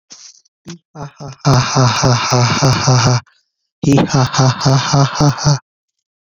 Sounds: Laughter